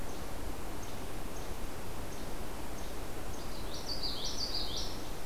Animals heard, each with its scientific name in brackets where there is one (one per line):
Least Flycatcher (Empidonax minimus)
Common Yellowthroat (Geothlypis trichas)